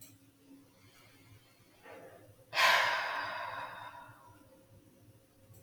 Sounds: Sigh